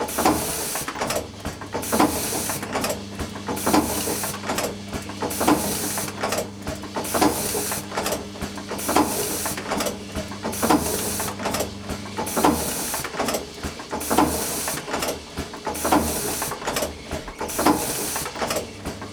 Is the noise produced by a human being?
no